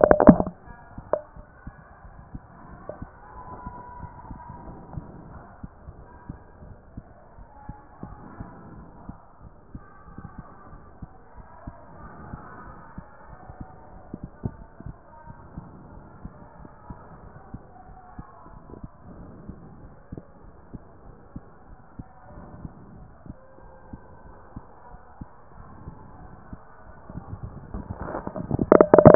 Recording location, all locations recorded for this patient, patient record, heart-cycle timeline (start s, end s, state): aortic valve (AV)
aortic valve (AV)+pulmonary valve (PV)+tricuspid valve (TV)+mitral valve (MV)
#Age: nan
#Sex: Female
#Height: nan
#Weight: nan
#Pregnancy status: True
#Murmur: Absent
#Murmur locations: nan
#Most audible location: nan
#Systolic murmur timing: nan
#Systolic murmur shape: nan
#Systolic murmur grading: nan
#Systolic murmur pitch: nan
#Systolic murmur quality: nan
#Diastolic murmur timing: nan
#Diastolic murmur shape: nan
#Diastolic murmur grading: nan
#Diastolic murmur pitch: nan
#Diastolic murmur quality: nan
#Outcome: Abnormal
#Campaign: 2014 screening campaign
0.00	8.77	unannotated
8.77	9.06	diastole
9.06	9.16	S1
9.16	9.40	systole
9.40	9.48	S2
9.48	9.74	diastole
9.74	9.82	S1
9.82	10.07	systole
10.07	10.15	S2
10.15	10.38	diastole
10.38	10.46	S1
10.46	10.68	systole
10.68	10.78	S2
10.78	11.02	diastole
11.02	11.10	S1
11.10	11.34	systole
11.34	11.42	S2
11.42	11.67	diastole
11.67	11.76	S1
11.76	11.96	systole
11.96	12.06	S2
12.06	12.30	diastole
12.30	12.40	S1
12.40	12.62	systole
12.62	12.70	S2
12.70	12.97	diastole
12.97	13.06	S1
13.06	13.26	systole
13.26	13.36	S2
13.36	13.58	diastole
13.58	29.15	unannotated